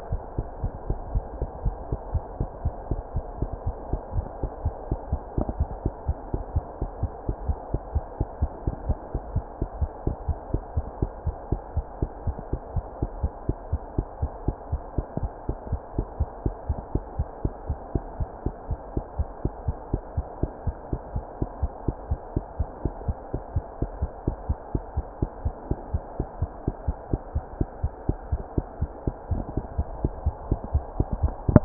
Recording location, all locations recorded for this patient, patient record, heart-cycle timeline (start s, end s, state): mitral valve (MV)
aortic valve (AV)+mitral valve (MV)
#Age: Child
#Sex: Female
#Height: 74.0 cm
#Weight: 10.1 kg
#Pregnancy status: False
#Murmur: Absent
#Murmur locations: nan
#Most audible location: nan
#Systolic murmur timing: nan
#Systolic murmur shape: nan
#Systolic murmur grading: nan
#Systolic murmur pitch: nan
#Systolic murmur quality: nan
#Diastolic murmur timing: nan
#Diastolic murmur shape: nan
#Diastolic murmur grading: nan
#Diastolic murmur pitch: nan
#Diastolic murmur quality: nan
#Outcome: Abnormal
#Campaign: 2015 screening campaign
0.00	0.10	unannotated
0.10	0.20	S1
0.20	0.36	systole
0.36	0.46	S2
0.46	0.61	diastole
0.61	0.72	S1
0.72	0.88	systole
0.88	1.00	S2
1.00	1.14	diastole
1.14	1.24	S1
1.24	1.39	systole
1.39	1.50	S2
1.50	1.64	diastole
1.64	1.76	S1
1.76	1.90	systole
1.90	2.00	S2
2.00	2.12	diastole
2.12	2.24	S1
2.24	2.37	systole
2.37	2.50	S2
2.50	2.62	diastole
2.62	2.74	S1
2.74	2.90	systole
2.90	3.02	S2
3.02	3.13	diastole
3.13	3.24	S1
3.24	3.39	systole
3.39	3.50	S2
3.50	3.64	diastole
3.64	3.76	S1
3.76	3.89	systole
3.89	4.02	S2
4.02	4.14	diastole
4.14	4.26	S1
4.26	4.39	systole
4.39	4.52	S2
4.52	4.61	diastole
4.61	4.74	S1
4.74	4.88	systole
4.88	5.00	S2
5.00	5.11	diastole
5.11	5.20	S1
5.20	5.35	systole
5.35	5.46	S2
5.46	5.57	diastole
5.57	5.70	S1
5.70	5.82	systole
5.82	5.94	S2
5.94	6.05	diastole
6.05	6.16	S1
6.16	6.32	systole
6.32	6.44	S2
6.44	6.52	diastole
6.52	6.62	S1
6.62	6.79	systole
6.79	6.90	S2
6.90	7.00	diastole
7.00	7.12	S1
7.12	7.26	systole
7.26	7.36	S2
7.36	7.46	diastole
7.46	7.58	S1
7.58	7.71	systole
7.71	7.80	S2
7.80	7.94	diastole
7.94	8.04	S1
8.04	8.18	systole
8.18	8.28	S2
8.28	8.39	diastole
8.39	8.52	S1
8.52	8.64	systole
8.64	8.76	S2
8.76	8.86	diastole
8.86	8.98	S1
8.98	9.12	systole
9.12	9.24	S2
9.24	9.34	diastole
9.34	9.44	S1
9.44	9.59	systole
9.59	9.70	S2
9.70	9.80	diastole
9.80	9.90	S1
9.90	10.06	systole
10.06	10.16	S2
10.16	10.26	diastole
10.26	10.36	S1
10.36	10.50	systole
10.50	10.60	S2
10.60	10.74	diastole
10.74	10.86	S1
10.86	11.00	systole
11.00	11.12	S2
11.12	11.24	diastole
11.24	11.36	S1
11.36	11.50	systole
11.50	11.60	S2
11.60	11.74	diastole
11.74	11.86	S1
11.86	12.00	systole
12.00	12.10	S2
12.10	12.25	diastole
12.25	12.36	S1
12.36	12.52	systole
12.52	12.62	S2
12.62	12.75	diastole
12.75	12.84	S1
12.84	12.99	systole
12.99	13.09	S2
13.09	13.21	diastole
13.21	13.34	S1
13.34	31.65	unannotated